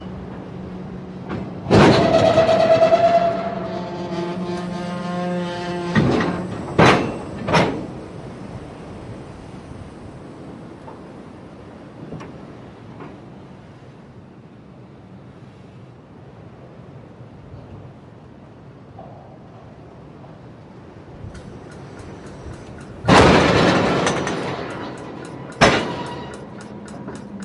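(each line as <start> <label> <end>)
1.5 Two wagons crash into each other with a loud, powerful sliding noise. 5.8
23.0 Two metal surfaces clash with a powerful sound. 24.9
25.5 Two metal surfaces meeting. 26.1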